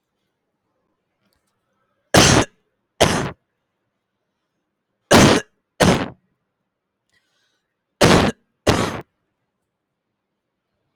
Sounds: Cough